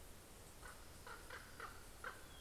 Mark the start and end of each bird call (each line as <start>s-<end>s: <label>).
0.3s-2.4s: Common Raven (Corvus corax)